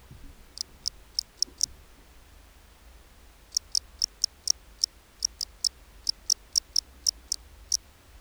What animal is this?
Gryllodes sigillatus, an orthopteran